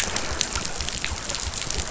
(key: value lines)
label: biophony
recorder: SoundTrap 500